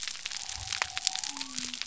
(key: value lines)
label: biophony
recorder: SoundTrap 300